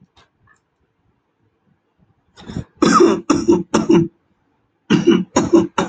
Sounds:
Cough